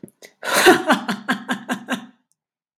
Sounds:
Laughter